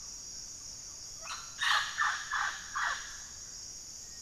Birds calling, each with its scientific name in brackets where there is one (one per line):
Thrush-like Wren (Campylorhynchus turdinus)
Mealy Parrot (Amazona farinosa)